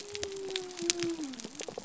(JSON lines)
{"label": "biophony", "recorder": "SoundTrap 300"}